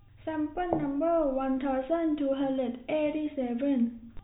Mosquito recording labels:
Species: no mosquito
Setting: cup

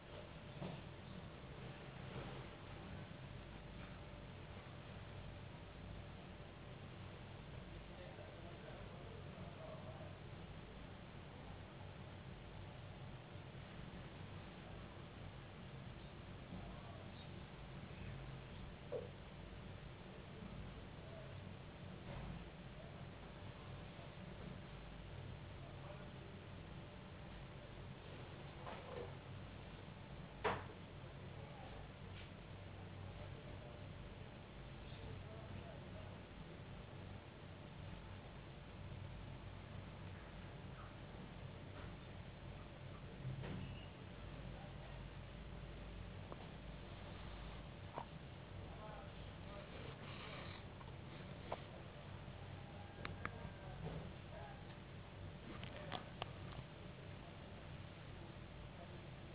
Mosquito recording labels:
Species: no mosquito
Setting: insect culture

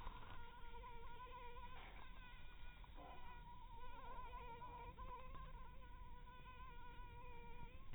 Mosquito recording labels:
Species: mosquito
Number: one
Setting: cup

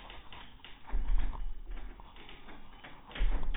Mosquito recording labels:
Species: mosquito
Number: one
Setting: cup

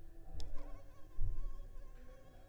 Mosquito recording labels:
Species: Culex tigripes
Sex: female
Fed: unfed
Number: one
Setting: cup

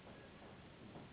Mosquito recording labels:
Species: Anopheles gambiae s.s.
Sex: female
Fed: unfed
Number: one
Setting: insect culture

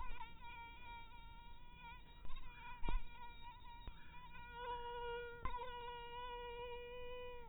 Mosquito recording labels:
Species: mosquito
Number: one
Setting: cup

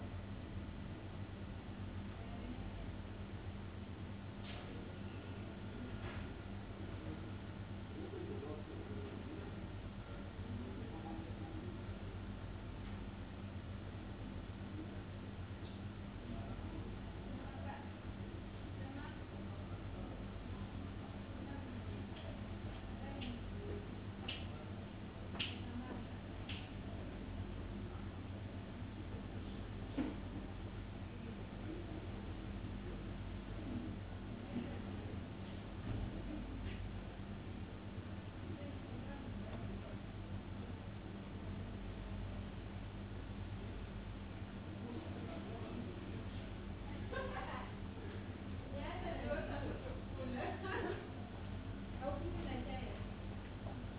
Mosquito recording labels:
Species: no mosquito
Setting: insect culture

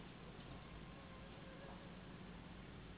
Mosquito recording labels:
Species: Anopheles gambiae s.s.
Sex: female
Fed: unfed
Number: one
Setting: insect culture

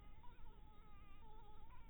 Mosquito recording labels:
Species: Anopheles harrisoni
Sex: female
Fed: blood-fed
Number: one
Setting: cup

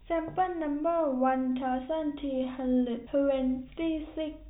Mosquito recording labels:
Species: no mosquito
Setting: cup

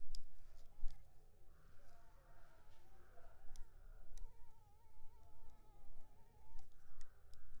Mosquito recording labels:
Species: Culex pipiens complex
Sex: female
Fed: unfed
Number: one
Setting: cup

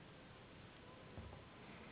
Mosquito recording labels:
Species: Anopheles gambiae s.s.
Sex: female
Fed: unfed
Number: one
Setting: insect culture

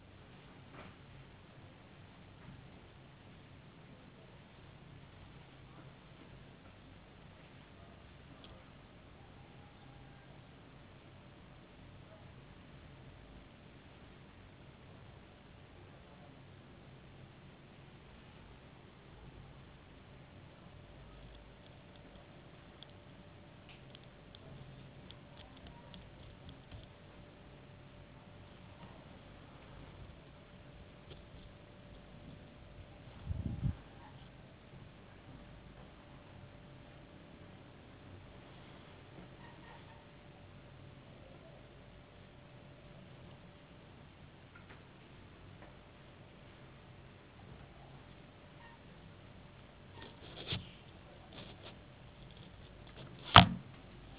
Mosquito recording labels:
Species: no mosquito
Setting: insect culture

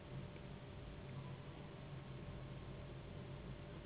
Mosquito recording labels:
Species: Anopheles gambiae s.s.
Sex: female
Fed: unfed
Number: one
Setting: insect culture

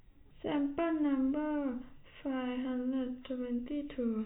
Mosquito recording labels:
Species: no mosquito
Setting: cup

